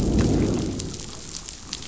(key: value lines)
label: biophony, growl
recorder: SoundTrap 500